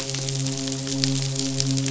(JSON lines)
{"label": "biophony, midshipman", "recorder": "SoundTrap 500"}